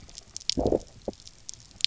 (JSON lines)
{"label": "biophony, low growl", "recorder": "SoundTrap 300"}